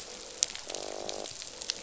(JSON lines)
{"label": "biophony, croak", "recorder": "SoundTrap 500"}